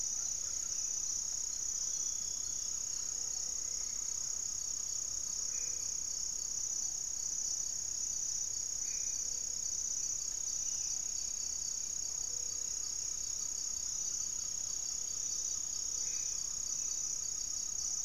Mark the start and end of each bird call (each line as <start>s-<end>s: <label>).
0.0s-0.9s: Buff-breasted Wren (Cantorchilus leucotis)
0.0s-1.4s: Cobalt-winged Parakeet (Brotogeris cyanoptera)
0.0s-6.4s: Great Antshrike (Taraba major)
0.0s-18.0s: Gray-fronted Dove (Leptotila rufaxilla)
2.7s-4.2s: unidentified bird
5.2s-9.1s: Black-faced Antthrush (Formicarius analis)
10.3s-11.9s: unidentified bird
11.8s-18.0s: Great Antshrike (Taraba major)
15.8s-18.0s: Black-faced Antthrush (Formicarius analis)